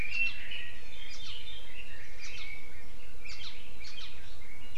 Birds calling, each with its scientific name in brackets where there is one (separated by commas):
Red-billed Leiothrix (Leiothrix lutea), Iiwi (Drepanis coccinea)